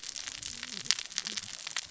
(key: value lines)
label: biophony, cascading saw
recorder: SoundTrap 600 or HydroMoth